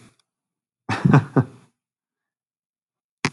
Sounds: Laughter